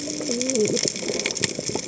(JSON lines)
{"label": "biophony, cascading saw", "recorder": "HydroMoth"}